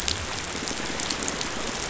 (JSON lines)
{"label": "biophony", "recorder": "SoundTrap 500"}